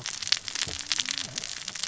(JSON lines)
{"label": "biophony, cascading saw", "recorder": "SoundTrap 600 or HydroMoth"}